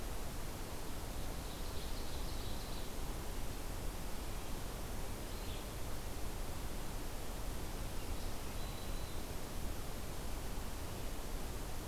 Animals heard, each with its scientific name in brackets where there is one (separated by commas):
Red-eyed Vireo (Vireo olivaceus), Black-throated Green Warbler (Setophaga virens), Ovenbird (Seiurus aurocapilla)